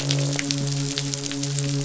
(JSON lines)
{"label": "biophony, midshipman", "recorder": "SoundTrap 500"}
{"label": "biophony, croak", "recorder": "SoundTrap 500"}